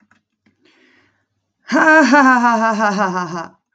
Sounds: Laughter